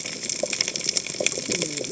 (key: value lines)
label: biophony, cascading saw
recorder: HydroMoth